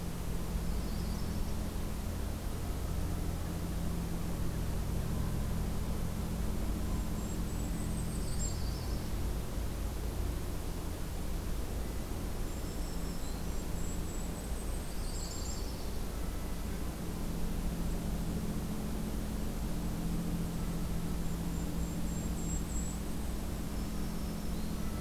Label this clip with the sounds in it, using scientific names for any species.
Setophaga coronata, Regulus satrapa, Setophaga virens